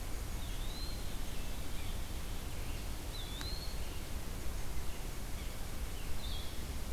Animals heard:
Eastern Wood-Pewee (Contopus virens), Blue-headed Vireo (Vireo solitarius), unidentified call

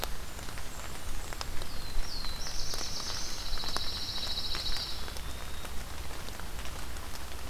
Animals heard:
Blackburnian Warbler (Setophaga fusca), Pine Warbler (Setophaga pinus), Black-throated Blue Warbler (Setophaga caerulescens), Eastern Wood-Pewee (Contopus virens)

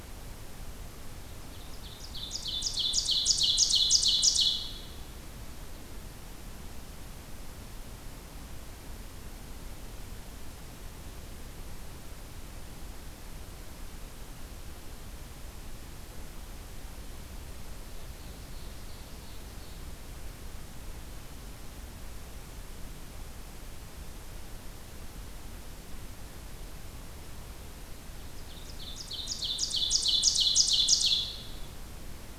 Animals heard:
Ovenbird (Seiurus aurocapilla)

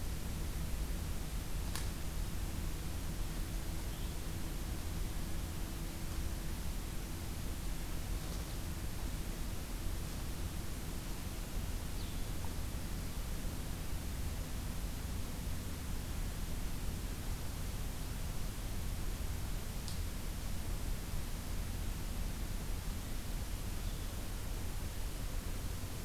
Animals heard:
Blue-headed Vireo (Vireo solitarius)

